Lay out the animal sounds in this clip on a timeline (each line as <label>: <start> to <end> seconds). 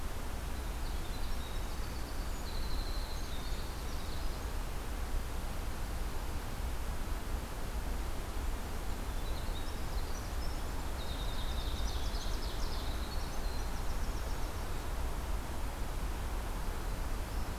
Winter Wren (Troglodytes hiemalis): 0.5 to 4.6 seconds
Winter Wren (Troglodytes hiemalis): 9.0 to 14.8 seconds
Ovenbird (Seiurus aurocapilla): 11.4 to 13.0 seconds